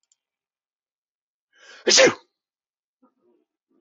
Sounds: Sneeze